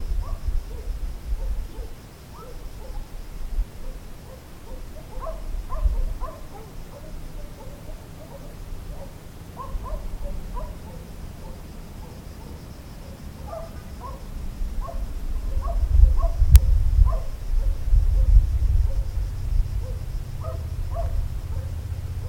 Are there crickets or other bugs in the background?
yes